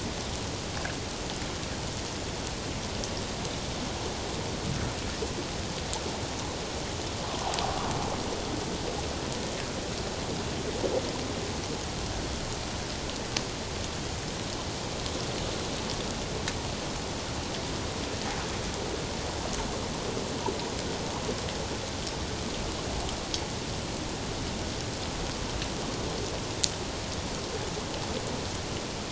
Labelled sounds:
7.3	7.6	water noise, 0.78 to 1.2 kHz

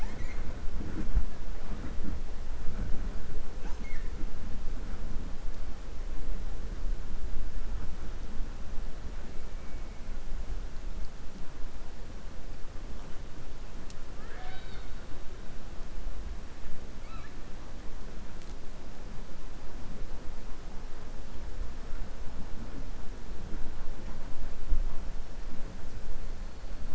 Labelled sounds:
14.1	14.9	killer whale, 0.53 to 4.6 kHz

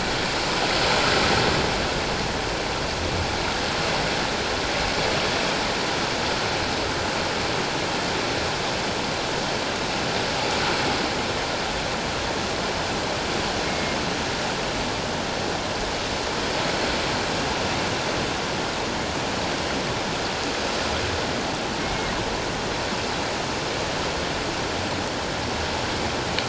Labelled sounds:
13.7	14.0	killer whale, 2.1 to 2.2 kHz
21.8	22.1	killer whale, northern resident, G clan, 2.1 to 2.3 kHz

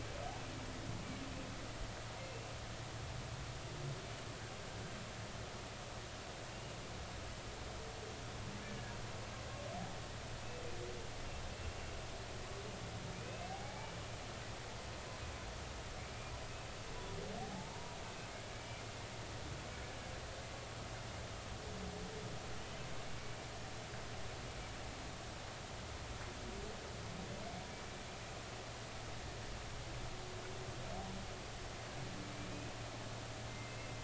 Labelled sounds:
2.2	2.5	humpback whale, 2.6 to 2.8 kHz
13.1	13.9	humpback whale, 0.80 to 2.7 kHz
17.4	18.0	humpback whale, 0.80 to 0.99 kHz
18.5	18.8	humpback whale, 2.2 to 2.4 kHz
33.5	33.9	humpback whale, 2.0 to 2.7 kHz

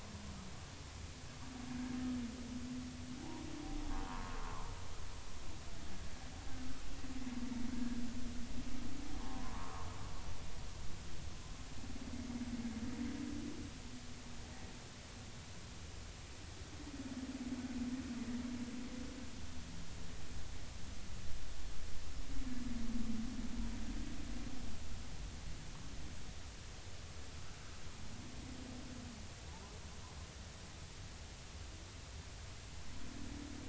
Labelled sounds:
4.1	4.4	humpback whale, 0.90 to 1.2 kHz
7.7	8.0	humpback whale, 1.5 to 1.7 kHz
9.2	9.9	humpback whale, 0.80 to 1.3 kHz
29.5	29.8	humpback whale, 0.80 to 1.1 kHz

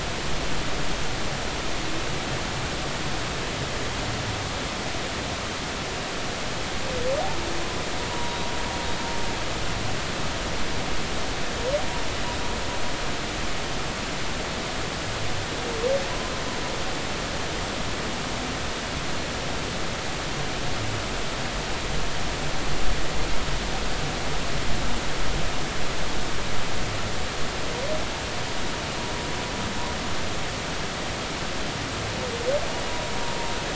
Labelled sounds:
8.1	8.4	humpback whale, 0.93 to 0.99 kHz

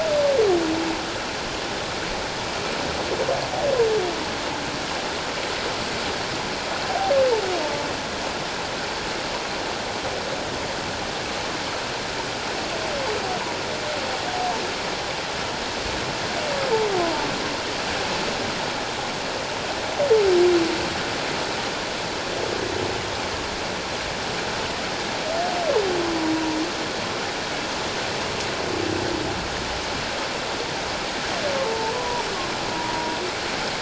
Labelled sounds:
6.9	7.1	humpback whale, 0.78 to 0.84 kHz
17.0	17.3	humpback whale, 0.84 to 1.1 kHz
31.7	32.2	humpback whale, 0.84 to 1.1 kHz
32.7	33.2	humpback whale, 0.91 to 1.0 kHz

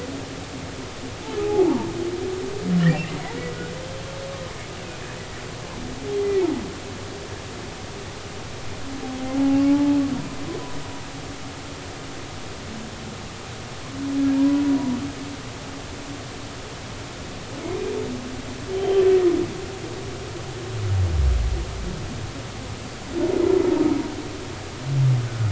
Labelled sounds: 1.4	1.9	humpback whale, 0.80 to 1.0 kHz
9.2	10.0	humpback whale, 0.80 to 0.90 kHz
14.3	14.6	humpback whale, 0.86 to 1.0 kHz
18.7	19.0	humpback whale, 3.0 to 3.2 kHz
25.3	25.4	humpback whale, 1.2 to 1.5 kHz

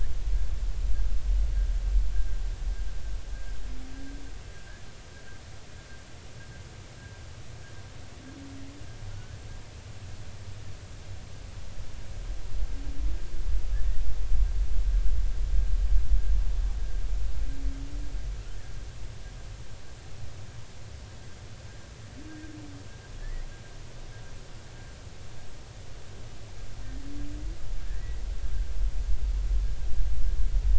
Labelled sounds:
9.1	9.3	humpback whale, 1.3 to 1.6 kHz
27.9	28.2	humpback whale, 1.6 to 2.0 kHz

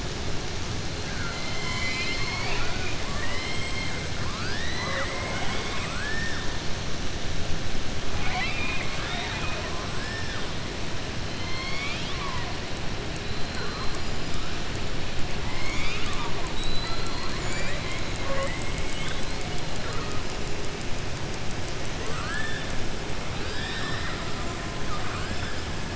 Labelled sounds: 1.0	3.0	killer whale, southern resident, 0.71 to 7.4 kHz
4.2	4.8	killer whale, southern resident, 1.0 to 5.2 kHz
8.1	10.4	killer whale, southern resident, 0.64 to 4.8 kHz
11.3	12.5	killer whale, southern resident, 0.97 to 5.5 kHz
15.4	18.0	killer whale, southern resident, 0.68 to 7.1 kHz
24.8	25.5	killer whale, southern resident, 0.74 to 3.5 kHz

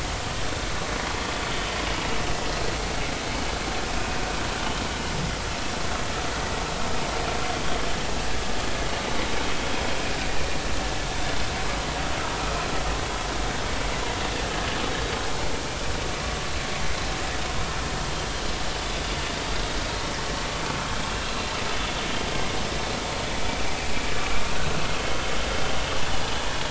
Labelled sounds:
12.4	12.6	vessel noise, 1.2 to 1.4 kHz
25.0	25.2	vessel noise, 2.9 to 3.3 kHz

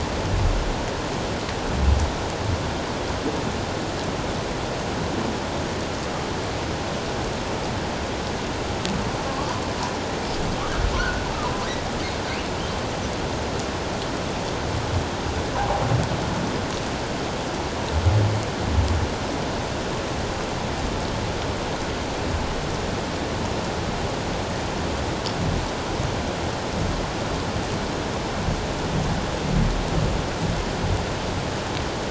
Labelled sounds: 9.3	9.5	humpback whale, 1.0 to 1.2 kHz
11.0	11.2	humpback whale, 1.4 to 1.6 kHz

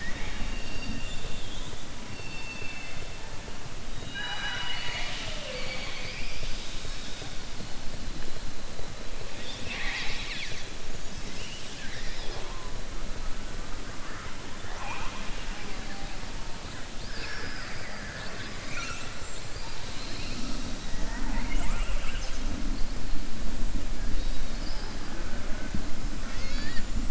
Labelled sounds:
4.0	7.2	killer whale, southern resident, 0.59 to 6.8 kHz
9.3	10.7	killer whale, southern resident, 0.80 to 6.5 kHz
14.6	15.8	killer whale, southern resident, 0.55 to 3.3 kHz
16.9	18.5	killer whale, southern resident, 0.87 to 5.5 kHz

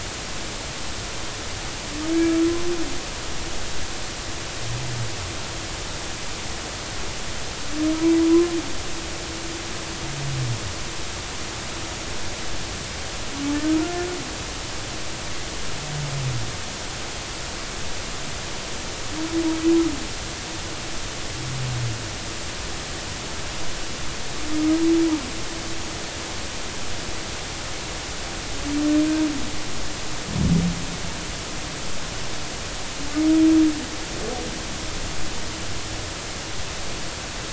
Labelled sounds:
2.1	2.4	humpback whale, 1.6 to 1.7 kHz

